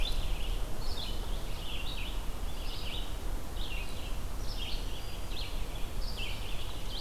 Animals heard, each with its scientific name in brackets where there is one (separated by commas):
Black-throated Green Warbler (Setophaga virens), Red-eyed Vireo (Vireo olivaceus)